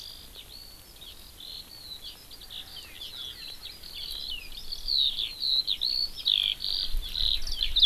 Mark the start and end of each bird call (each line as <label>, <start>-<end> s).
Eurasian Skylark (Alauda arvensis), 0.0-7.9 s